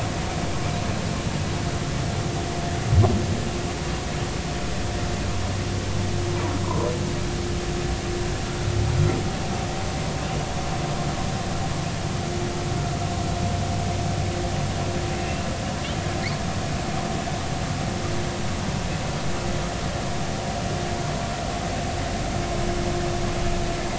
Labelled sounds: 6.6	6.9	humpback whale, 0.90 to 1.1 kHz
15.2	15.5	humpback whale, 2.6 to 2.8 kHz

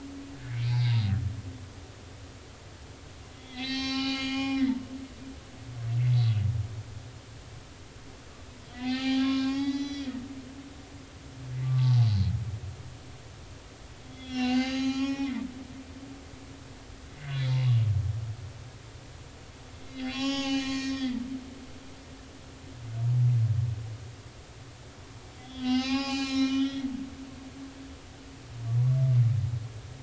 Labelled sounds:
0.4	0.9	humpback whale, 1.4 to 4.7 kHz
3.3	4.6	humpback whale, 0.80 to 6.8 kHz
8.7	10.1	humpback whale, 0.80 to 6.8 kHz
11.6	12.3	humpback whale, 0.80 to 4.4 kHz
14.0	15.3	humpback whale, 0.80 to 7.0 kHz
17.2	17.8	humpback whale, 0.99 to 3.5 kHz
19.8	21.2	humpback whale, 0.80 to 7.0 kHz
25.4	26.9	humpback whale, 0.80 to 7.0 kHz

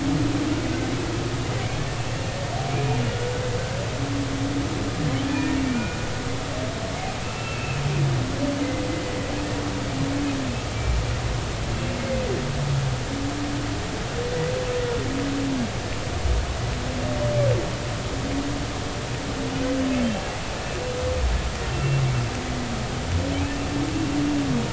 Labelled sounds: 5.2	6.0	humpback whale, 1.7 to 2.5 kHz
7.2	7.8	humpback whale, 2.5 to 2.8 kHz
10.7	11.0	humpback whale, 2.3 to 2.4 kHz
21.7	22.0	humpback whale, 2.7 to 2.8 kHz

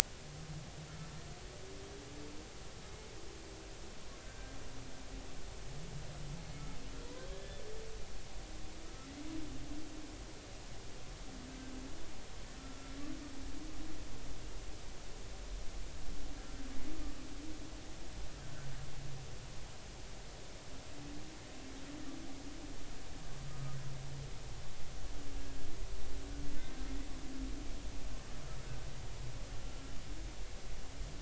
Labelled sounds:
4.2	4.5	humpback whale, 1.5 to 1.6 kHz
7.2	7.6	humpback whale, 1.6 to 3.6 kHz
12.6	13.0	humpback whale, 1.3 to 1.4 kHz
23.5	23.8	humpback whale, 1.2 to 1.3 kHz

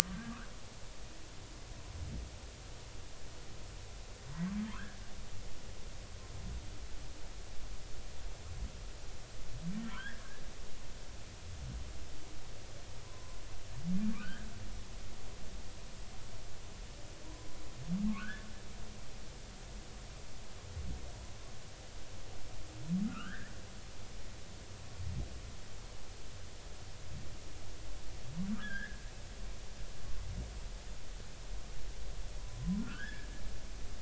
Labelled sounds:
9.8	10.2	humpback whale, 0.96 to 3.5 kHz
13.0	13.4	humpback whale, 0.96 to 1.1 kHz
14.1	14.5	humpback whale, 0.99 to 1.9 kHz
18.1	18.5	humpback whale, 1.0 to 1.8 kHz
23.0	23.5	humpback whale, 1.2 to 3.4 kHz
28.6	29.0	humpback whale, 1.5 to 3.6 kHz
32.8	33.3	humpback whale, 1.3 to 1.8 kHz

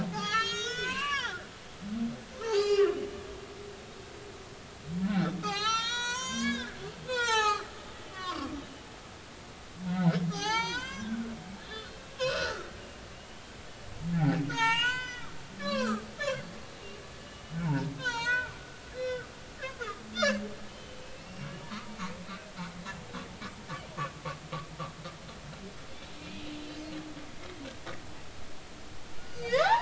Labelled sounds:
0.0	1.4	humpback whale, 0.80 to 8.0 kHz
2.4	3.1	humpback whale, 0.80 to 5.4 kHz
5.0	6.7	humpback whale, 0.80 to 7.9 kHz
7.1	7.7	humpback whale, 0.80 to 6.8 kHz
8.1	8.5	humpback whale, 0.96 to 5.0 kHz
10.3	12.7	humpback whale, 0.80 to 6.6 kHz
13.1	13.4	humpback whale, 2.7 to 3.0 kHz
14.1	16.5	humpback whale, 0.80 to 7.6 kHz
17.2	18.5	humpback whale, 0.80 to 7.3 kHz
18.9	19.2	humpback whale, 1.9 to 4.1 kHz
20.1	21.5	humpback whale, 2.6 to 5.6 kHz
22.2	22.5	humpback whale, 2.5 to 2.6 kHz
26.2	26.5	humpback whale, 2.4 to 2.6 kHz
29.2	29.8	humpback whale, 0.80 to 6.8 kHz

